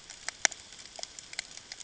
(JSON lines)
{"label": "ambient", "recorder": "HydroMoth"}